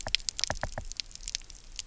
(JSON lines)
{"label": "biophony, knock", "recorder": "SoundTrap 300"}